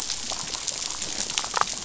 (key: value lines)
label: biophony, damselfish
recorder: SoundTrap 500